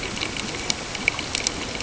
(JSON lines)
{"label": "ambient", "recorder": "HydroMoth"}